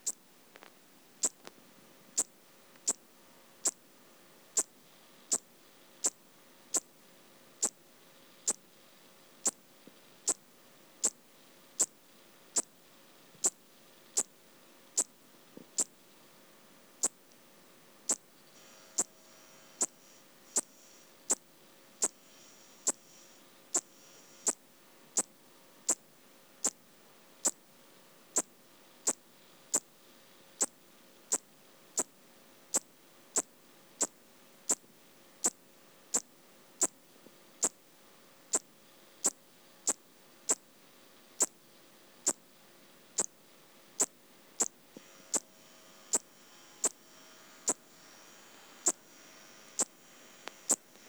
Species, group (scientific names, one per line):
Eupholidoptera schmidti
Orthoptera